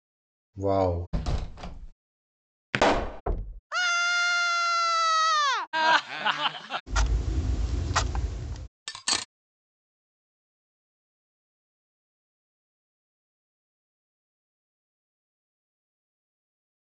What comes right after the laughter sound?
clock